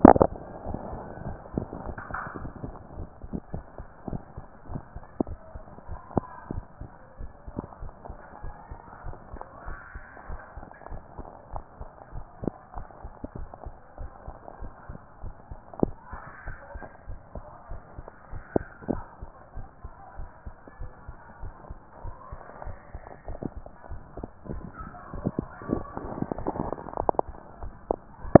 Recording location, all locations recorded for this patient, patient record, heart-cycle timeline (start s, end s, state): tricuspid valve (TV)
aortic valve (AV)+aortic valve (AV)+pulmonary valve (PV)+tricuspid valve (TV)+mitral valve (MV)+mitral valve (MV)
#Age: nan
#Sex: Female
#Height: nan
#Weight: nan
#Pregnancy status: True
#Murmur: Absent
#Murmur locations: nan
#Most audible location: nan
#Systolic murmur timing: nan
#Systolic murmur shape: nan
#Systolic murmur grading: nan
#Systolic murmur pitch: nan
#Systolic murmur quality: nan
#Diastolic murmur timing: nan
#Diastolic murmur shape: nan
#Diastolic murmur grading: nan
#Diastolic murmur pitch: nan
#Diastolic murmur quality: nan
#Outcome: Abnormal
#Campaign: 2014 screening campaign
0.00	6.52	unannotated
6.52	6.64	S1
6.64	6.80	systole
6.80	6.90	S2
6.90	7.20	diastole
7.20	7.32	S1
7.32	7.48	systole
7.48	7.54	S2
7.54	7.82	diastole
7.82	7.92	S1
7.92	8.08	systole
8.08	8.18	S2
8.18	8.42	diastole
8.42	8.54	S1
8.54	8.70	systole
8.70	8.78	S2
8.78	9.04	diastole
9.04	9.16	S1
9.16	9.32	systole
9.32	9.40	S2
9.40	9.66	diastole
9.66	9.78	S1
9.78	9.94	systole
9.94	10.02	S2
10.02	10.28	diastole
10.28	10.40	S1
10.40	10.56	systole
10.56	10.66	S2
10.66	10.90	diastole
10.90	11.02	S1
11.02	11.18	systole
11.18	11.26	S2
11.26	11.52	diastole
11.52	11.64	S1
11.64	11.80	systole
11.80	11.88	S2
11.88	12.14	diastole
12.14	12.26	S1
12.26	12.42	systole
12.42	12.52	S2
12.52	12.76	diastole
12.76	12.86	S1
12.86	13.02	systole
13.02	13.12	S2
13.12	13.36	diastole
13.36	13.48	S1
13.48	13.64	systole
13.64	13.74	S2
13.74	14.00	diastole
14.00	14.10	S1
14.10	14.26	systole
14.26	14.36	S2
14.36	14.60	diastole
14.60	14.72	S1
14.72	14.88	systole
14.88	14.98	S2
14.98	15.22	diastole
15.22	15.34	S1
15.34	15.50	systole
15.50	15.58	S2
15.58	15.84	diastole
15.84	15.96	S1
15.96	16.12	systole
16.12	16.20	S2
16.20	16.46	diastole
16.46	16.58	S1
16.58	16.74	systole
16.74	16.82	S2
16.82	17.08	diastole
17.08	17.20	S1
17.20	17.34	systole
17.34	17.44	S2
17.44	17.70	diastole
17.70	17.82	S1
17.82	17.96	systole
17.96	18.06	S2
18.06	18.32	diastole
18.32	18.44	S1
18.44	18.56	systole
18.56	18.66	S2
18.66	18.92	diastole
18.92	19.04	S1
19.04	19.20	systole
19.20	19.30	S2
19.30	19.56	diastole
19.56	19.68	S1
19.68	19.82	systole
19.82	19.92	S2
19.92	20.18	diastole
20.18	20.30	S1
20.30	20.46	systole
20.46	20.54	S2
20.54	20.80	diastole
20.80	20.92	S1
20.92	21.06	systole
21.06	21.16	S2
21.16	21.42	diastole
21.42	21.54	S1
21.54	21.68	systole
21.68	21.78	S2
21.78	22.04	diastole
22.04	22.16	S1
22.16	22.32	systole
22.32	22.40	S2
22.40	22.64	diastole
22.64	22.76	S1
22.76	22.92	systole
22.92	23.02	S2
23.02	23.28	diastole
23.28	23.38	S1
23.38	23.56	systole
23.56	23.64	S2
23.64	23.90	diastole
23.90	24.02	S1
24.02	24.18	systole
24.18	24.26	S2
24.26	24.50	diastole
24.50	28.40	unannotated